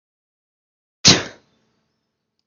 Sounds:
Sneeze